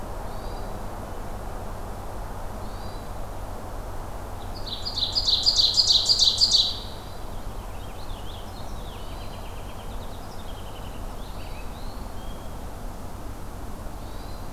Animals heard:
Purple Finch (Haemorhous purpureus), Ovenbird (Seiurus aurocapilla), Hermit Thrush (Catharus guttatus)

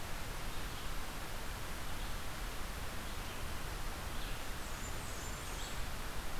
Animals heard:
Blackburnian Warbler (Setophaga fusca), Red-eyed Vireo (Vireo olivaceus)

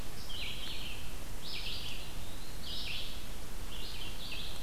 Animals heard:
Red-eyed Vireo (Vireo olivaceus), Eastern Wood-Pewee (Contopus virens)

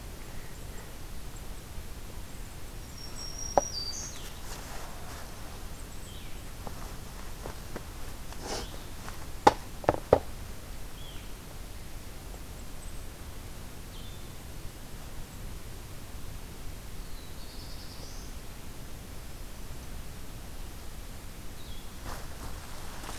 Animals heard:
Blue-headed Vireo (Vireo solitarius), Black-throated Blue Warbler (Setophaga caerulescens), Black-throated Green Warbler (Setophaga virens)

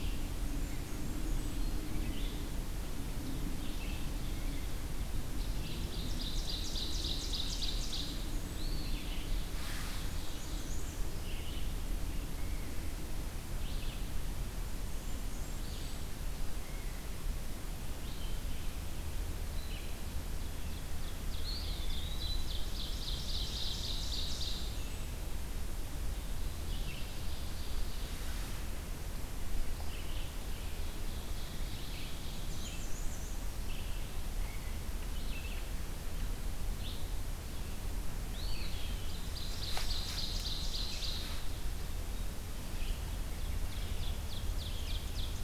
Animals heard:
Eastern Wood-Pewee (Contopus virens), Red-eyed Vireo (Vireo olivaceus), Black-and-white Warbler (Mniotilta varia), Blackburnian Warbler (Setophaga fusca), Ovenbird (Seiurus aurocapilla)

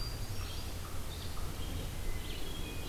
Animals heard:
Red-eyed Vireo (Vireo olivaceus), Hermit Thrush (Catharus guttatus)

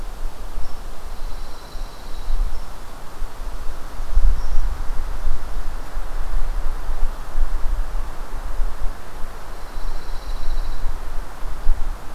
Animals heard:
Pine Warbler (Setophaga pinus), Red Squirrel (Tamiasciurus hudsonicus)

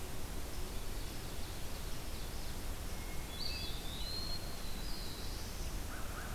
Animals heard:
American Crow (Corvus brachyrhynchos), Black-throated Blue Warbler (Setophaga caerulescens), Hermit Thrush (Catharus guttatus), Ovenbird (Seiurus aurocapilla), Eastern Wood-Pewee (Contopus virens)

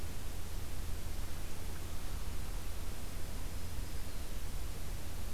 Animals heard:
Black-throated Green Warbler (Setophaga virens)

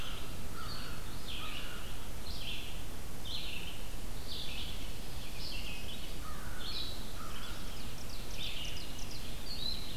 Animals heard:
Red-eyed Vireo (Vireo olivaceus), Ovenbird (Seiurus aurocapilla), American Crow (Corvus brachyrhynchos)

